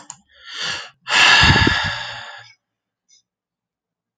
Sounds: Sigh